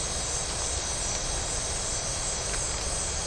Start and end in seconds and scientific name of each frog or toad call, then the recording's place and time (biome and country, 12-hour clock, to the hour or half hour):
none
Atlantic Forest, Brazil, 11pm